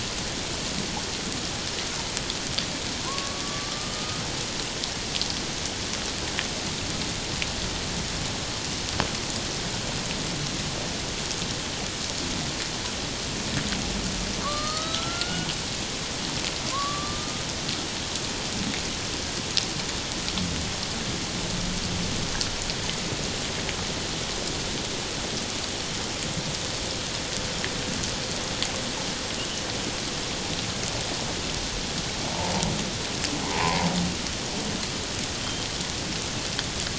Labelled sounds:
3.1	4.2	killer whale, Bigg's (transient), call T11, 0.94 to 1.3 kHz
14.4	15.5	killer whale, Bigg's (transient), call T11, 1.0 to 4.5 kHz
16.7	17.4	killer whale, Bigg's (transient), call T11, 0.97 to 1.2 kHz
33.4	33.9	humpback whale, 0.78 to 1.1 kHz

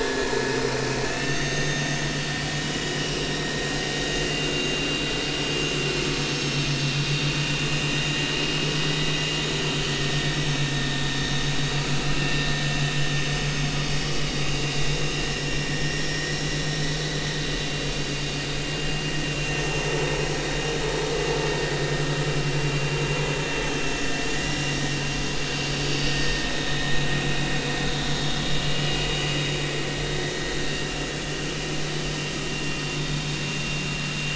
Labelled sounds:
1.1	2.0	vessel noise, 1.8 to 6.5 kHz
2.8	3.1	vessel noise, 2.8 to 3.0 kHz
4.3	4.9	vessel noise, 2.7 to 2.9 kHz
6.3	6.6	vessel noise, 5.3 to 5.5 kHz
10.3	11.0	vessel noise, 1.8 to 6.5 kHz
12.1	12.4	vessel noise, 2.6 to 2.8 kHz
14.3	14.7	vessel noise, 2.8 to 2.9 kHz
16.1	16.8	vessel noise, 1.8 to 4.0 kHz
18.7	19.6	vessel noise, 2.7 to 2.9 kHz
23.6	24.1	vessel noise, 2.7 to 6.4 kHz
26.1	26.9	vessel noise, 1.8 to 3.8 kHz
28.6	29.1	vessel noise, 2.8 to 3.0 kHz
30.6	31.2	vessel noise, 2.6 to 2.8 kHz

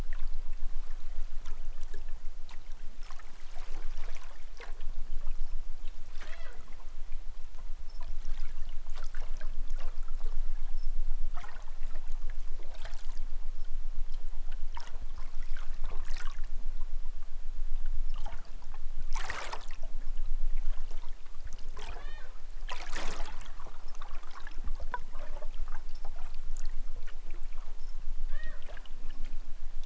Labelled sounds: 6.1	6.6	killer whale, southern Alaska resident, 0.28 to 5.6 kHz
21.9	22.3	killer whale, southern Alaska resident, 0.09 to 6.1 kHz
28.1	28.7	killer whale, southern Alaska resident, 0.23 to 5.7 kHz

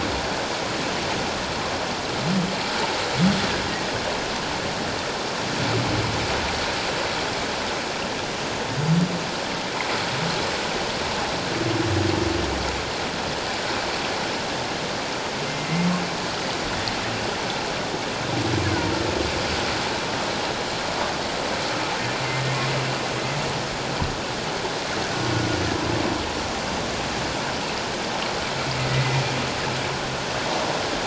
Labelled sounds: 8.8	9.0	humpback whale, 4.7 to 4.8 kHz
28.9	29.2	humpback whale, 1.9 to 2.1 kHz

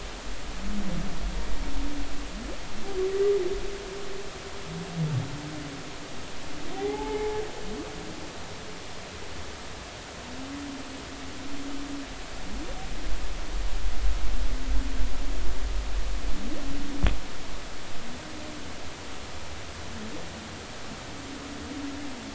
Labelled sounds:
6.8	7.4	humpback whale, 0.80 to 2.3 kHz

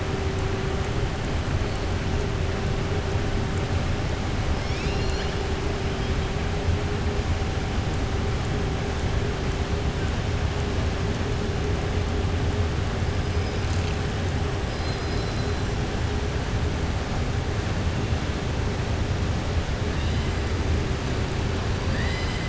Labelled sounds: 14.7	15.5	killer whale, southern resident, 3.4 to 5.5 kHz
21.8	22.4	killer whale, southern resident, 1.1 to 5.1 kHz

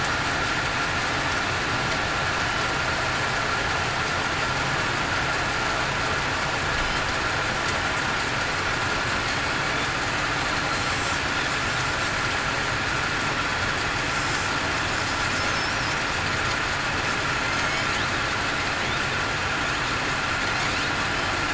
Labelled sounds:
17.4	17.8	killer whale, southern resident, 2.0 to 2.3 kHz

